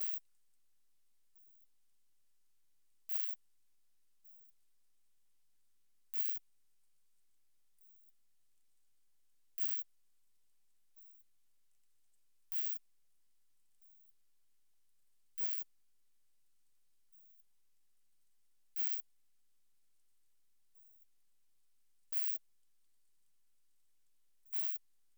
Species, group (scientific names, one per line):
Poecilimon thessalicus
Orthoptera